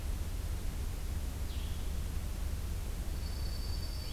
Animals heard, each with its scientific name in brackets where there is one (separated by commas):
Dark-eyed Junco (Junco hyemalis), Blue-headed Vireo (Vireo solitarius)